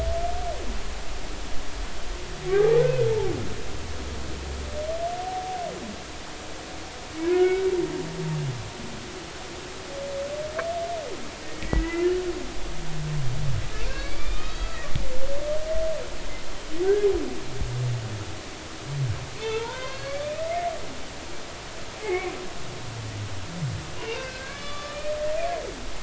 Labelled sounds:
7.3	7.6	humpback whale, 1.4 to 2.3 kHz
11.4	12.2	humpback whale, 1.8 to 3.0 kHz
13.9	14.8	humpback whale, 1.2 to 4.7 kHz
16.8	17.1	humpback whale, 1.4 to 1.7 kHz
19.4	20.3	humpback whale, 0.83 to 4.7 kHz
22.0	22.3	humpback whale, 0.80 to 2.3 kHz
24.0	25.0	humpback whale, 1.1 to 4.7 kHz

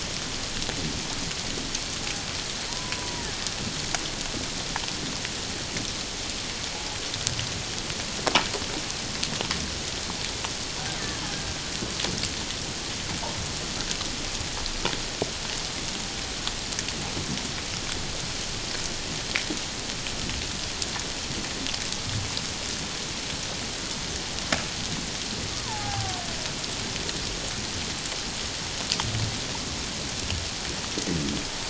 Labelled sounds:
2.7	3.3	killer whale, Bigg's (transient), 0.84 to 1.1 kHz
25.5	26.2	killer whale, Bigg's (transient), 0.78 to 1.3 kHz

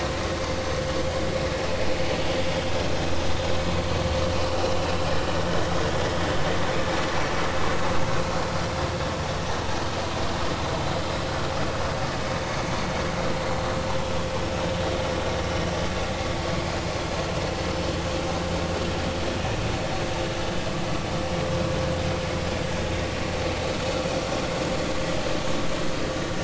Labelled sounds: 3.8	4.0	vessel noise, 4.3 to 4.5 kHz
4.6	4.9	vessel noise, 2.8 to 3.0 kHz

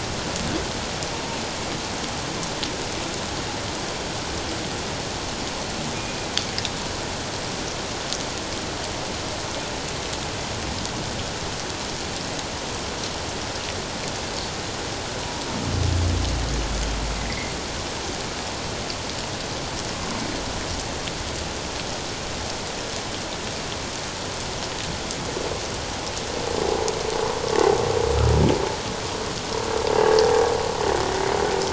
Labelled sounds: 17.3	17.5	humpback whale, 1.9 to 2.2 kHz
26.7	26.9	humpback whale, 0.78 to 1.0 kHz

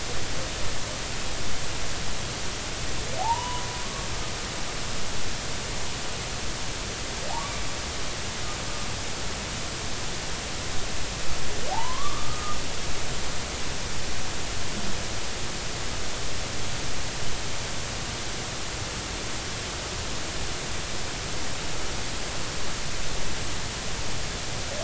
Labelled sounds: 3.2	3.6	humpback whale, 0.80 to 3.0 kHz
11.7	12.6	humpback whale, 0.80 to 1.3 kHz

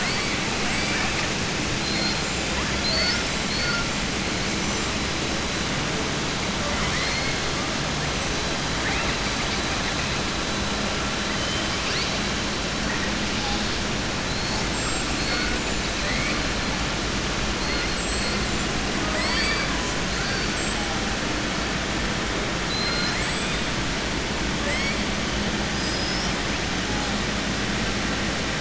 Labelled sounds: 0.6	1.3	killer whale, southern resident, 0.76 to 8.0 kHz
1.7	2.2	killer whale, southern resident, 3.5 to 5.1 kHz
2.7	3.2	killer whale, southern resident, 4.0 to 5.6 kHz
6.6	7.3	killer whale, southern resident, 1.0 to 4.4 kHz
14.6	15.1	killer whale, southern resident, 7.2 to 8.0 kHz
15.9	16.4	killer whale, southern resident, 1.8 to 2.5 kHz
17.8	18.3	killer whale, southern resident, 7.5 to 8.0 kHz
19.0	19.7	killer whale, southern resident, 0.63 to 5.5 kHz
22.6	23.6	killer whale, southern resident, 1.4 to 8.0 kHz
24.5	25.0	killer whale, southern resident, 0.92 to 5.5 kHz
25.7	26.3	killer whale, southern resident, 4.3 to 5.9 kHz

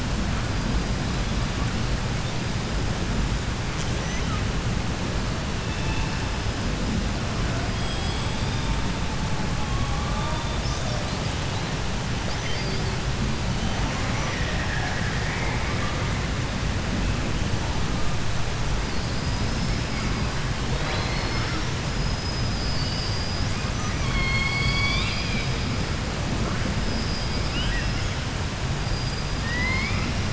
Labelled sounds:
0.4	1.9	killer whale, 0.75 to 5.3 kHz
2.1	3.2	killer whale, 3.2 to 5.3 kHz
3.9	4.5	killer whale, 0.10 to 6.5 kHz
5.2	9.2	killer whale, 0.38 to 8.0 kHz
18.7	25.9	killer whale, 0.10 to 8.0 kHz
26.8	28.3	killer whale, 0.10 to 8.0 kHz
28.7	30.3	killer whale, southern resident, call S19, 0.49 to 8.0 kHz

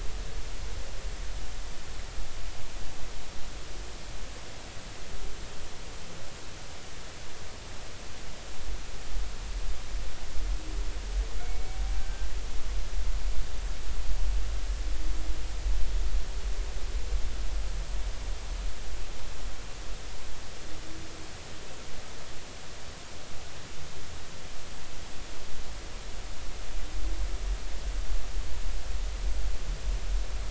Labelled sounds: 11.4	12.3	killer whale, northern resident, G clan, call N24ii, 1.5 to 2.3 kHz

